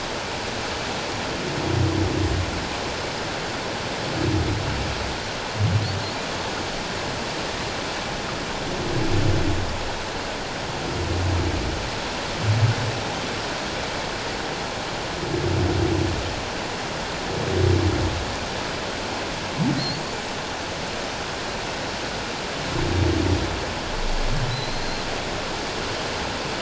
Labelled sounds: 19.8	20.0	humpback whale, 4.0 to 4.5 kHz
24.5	25.1	humpback whale, 3.9 to 4.4 kHz

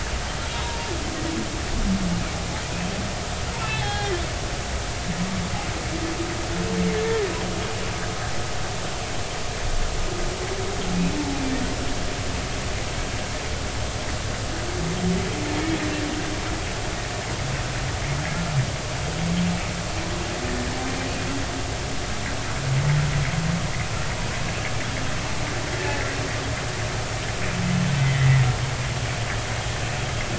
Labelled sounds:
0.5	0.8	humpback whale, 0.90 to 1.1 kHz
3.6	4.1	humpback whale, 0.80 to 3.8 kHz
28.0	28.5	humpback whale, 1.7 to 2.1 kHz

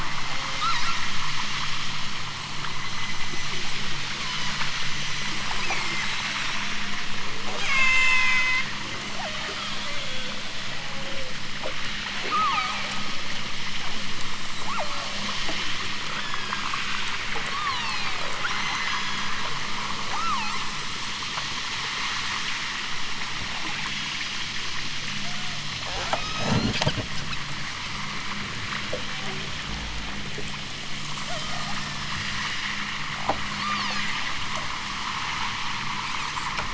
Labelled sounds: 0.5	1.1	killer whale, southern Alaska resident, 0.92 to 5.1 kHz
2.8	3.7	killer whale, southern Alaska resident, 4.0 to 6.5 kHz
4.0	7.2	killer whale, southern Alaska resident, 0.96 to 8.0 kHz
7.5	8.7	killer whale, southern Alaska resident, 0.46 to 8.0 kHz
9.1	9.9	killer whale, southern Alaska resident, 0.87 to 5.9 kHz
12.2	12.9	killer whale, southern Alaska resident, 0.50 to 4.9 kHz
14.2	15.3	killer whale, southern Alaska resident, 0.41 to 7.7 kHz
16.2	16.8	killer whale, southern Alaska resident, 1.5 to 6.3 kHz
17.5	19.7	killer whale, southern Alaska resident, 0.50 to 8.0 kHz
20.1	20.8	killer whale, southern Alaska resident, 0.41 to 4.5 kHz
23.8	24.3	killer whale, southern Alaska resident, 2.9 to 5.1 kHz
25.8	26.8	killer whale, southern Alaska resident, 0.32 to 6.9 kHz
31.2	31.9	killer whale, southern Alaska resident, 0.23 to 6.1 kHz
33.5	34.2	killer whale, southern Alaska resident, 0.55 to 7.4 kHz
36.0	36.6	killer whale, southern Alaska resident, 2.4 to 5.6 kHz

